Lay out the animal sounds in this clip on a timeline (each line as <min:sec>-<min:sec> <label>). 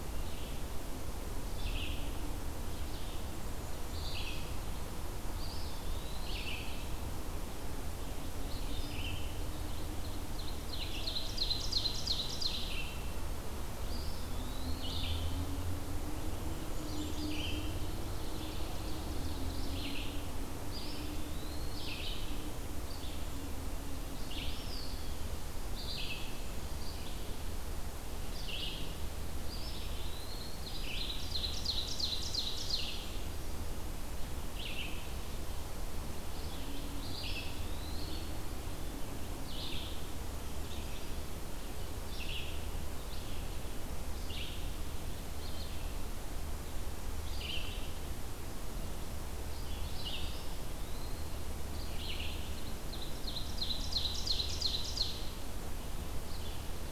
0:00.0-0:44.7 Red-eyed Vireo (Vireo olivaceus)
0:05.2-0:06.8 Eastern Wood-Pewee (Contopus virens)
0:10.0-0:13.1 Ovenbird (Seiurus aurocapilla)
0:13.7-0:15.3 Eastern Wood-Pewee (Contopus virens)
0:16.3-0:17.6 Brown Creeper (Certhia americana)
0:17.8-0:19.9 Ovenbird (Seiurus aurocapilla)
0:20.5-0:22.2 Eastern Wood-Pewee (Contopus virens)
0:24.3-0:25.4 Eastern Wood-Pewee (Contopus virens)
0:29.2-0:30.9 Eastern Wood-Pewee (Contopus virens)
0:30.0-0:33.2 Ovenbird (Seiurus aurocapilla)
0:36.8-0:38.4 Eastern Wood-Pewee (Contopus virens)
0:45.3-0:56.9 Red-eyed Vireo (Vireo olivaceus)
0:50.0-0:51.4 Eastern Wood-Pewee (Contopus virens)
0:52.6-0:55.7 Ovenbird (Seiurus aurocapilla)